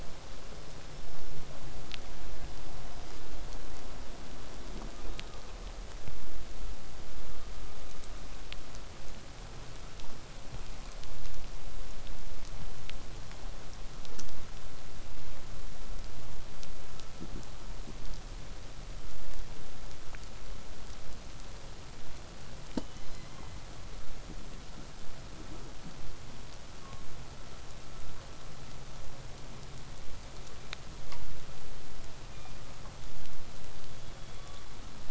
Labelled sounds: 0.2	1.5	killer whale, southern resident, 4.9 to 8.0 kHz
4.9	5.4	killer whale, southern resident, call S16, 1.0 to 3.9 kHz
32.3	32.6	killer whale, southern resident, call S16, 1.1 to 3.8 kHz
33.9	34.9	killer whale, southern resident, call S16, 0.93 to 3.6 kHz

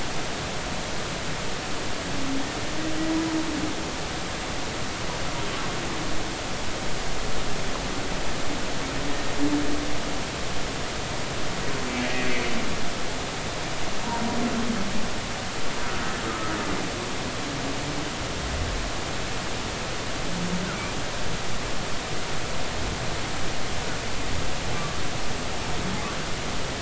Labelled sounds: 12.2	12.5	humpback whale, 2.2 to 2.4 kHz
16.3	16.6	humpback whale, 1.2 to 1.4 kHz

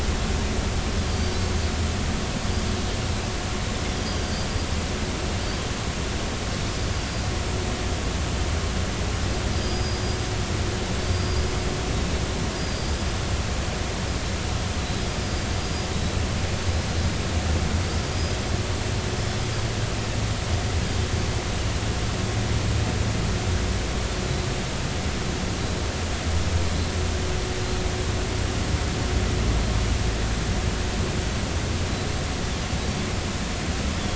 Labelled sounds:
1.1	1.4	Pacific white-sided dolphin, 4.5 to 4.8 kHz
4.2	4.5	Pacific white-sided dolphin, 4.6 to 4.9 kHz
6.9	7.2	Pacific white-sided dolphin, 4.7 to 5.0 kHz
9.5	10.0	Pacific white-sided dolphin, 4.7 to 5.1 kHz
11.0	11.4	Pacific white-sided dolphin, 4.4 to 4.9 kHz
12.5	12.9	Pacific white-sided dolphin, 4.4 to 5.0 kHz
15.5	15.9	Pacific white-sided dolphin, 4.8 to 4.9 kHz

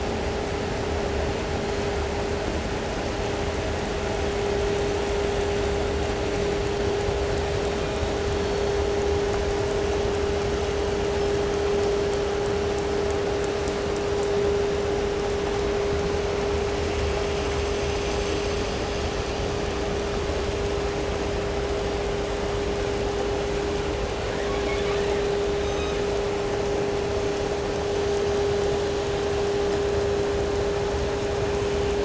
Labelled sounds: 7.7	8.2	killer whale, southern resident, 1.9 to 3.1 kHz
24.0	25.3	killer whale, southern resident, 0.67 to 7.7 kHz
25.4	26.2	killer whale, southern resident, call S17, 0.90 to 8.0 kHz

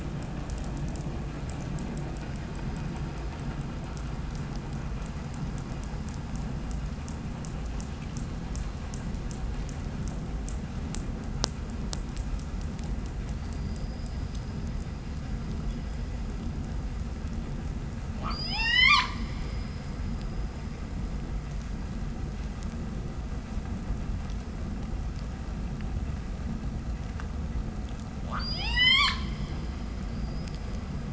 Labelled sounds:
18.0	19.8	killer whale, 0.37 to 8.0 kHz
22.6	26.8	vessel noise, 0 to 3.6 kHz
28.1	29.4	killer whale, 0.26 to 8.0 kHz

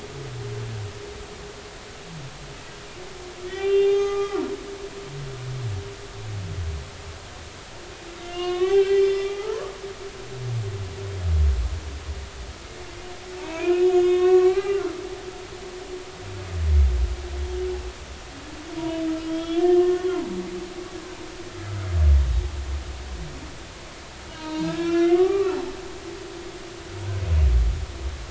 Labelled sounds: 3.4	4.4	humpback whale, 0.80 to 6.5 kHz
8.2	9.7	humpback whale, 0.80 to 5.2 kHz
13.3	15.0	humpback whale, 0.86 to 6.9 kHz
19.3	20.2	humpback whale, 0.90 to 3.5 kHz
24.4	25.5	humpback whale, 0.90 to 5.9 kHz

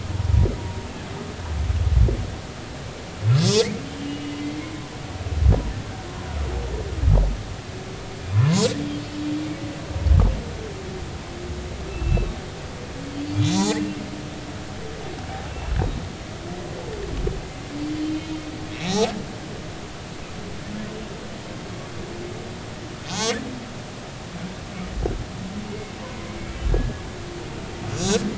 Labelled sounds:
3.3	4.7	humpback whale, 2.0 to 6.4 kHz
8.3	8.7	humpback whale, 0.80 to 1.1 kHz
11.9	12.3	humpback whale, 2.6 to 2.7 kHz
13.4	13.8	humpback whale, 0.80 to 4.5 kHz
15.5	15.7	humpback whale, 2.6 to 2.8 kHz
18.8	19.1	humpback whale, 3.6 to 4.0 kHz
23.0	23.3	humpback whale, 0.80 to 6.8 kHz
25.7	27.0	humpback whale, 1.6 to 2.2 kHz

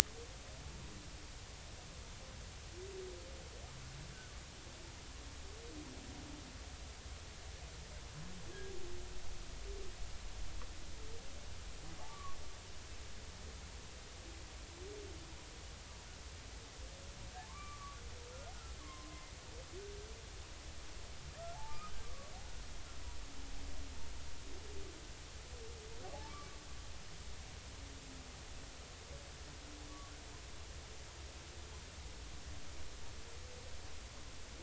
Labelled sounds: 12.1	12.4	humpback whale, 1.1 to 1.2 kHz
17.5	18.0	humpback whale, 0.99 to 2.4 kHz
18.8	19.3	humpback whale, 0.99 to 1.2 kHz
21.5	22.3	humpback whale, 0.80 to 1.4 kHz

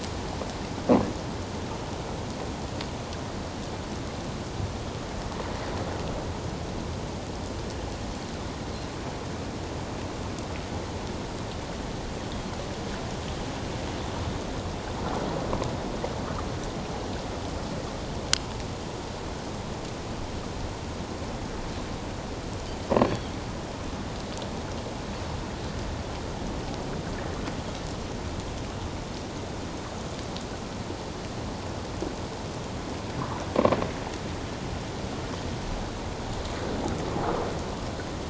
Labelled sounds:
23.0	23.3	Pacific white-sided dolphin, 3.1 to 4.6 kHz

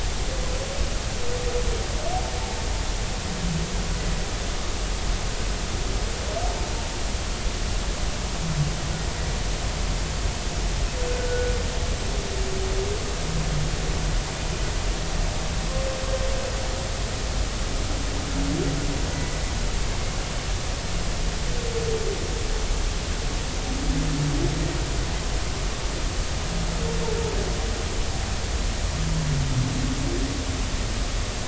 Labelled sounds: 11.2	11.5	humpback whale, 1.4 to 1.5 kHz
19.1	19.4	humpback whale, 1.95 to 2.02 kHz

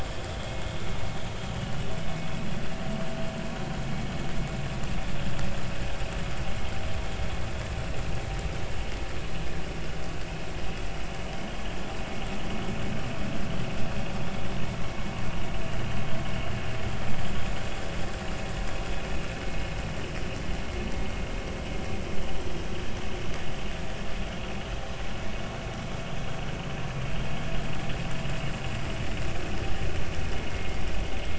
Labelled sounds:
11.3	11.6	vessel noise, 3.0 to 3.3 kHz
30.5	30.8	vessel noise, 2.0 to 2.2 kHz

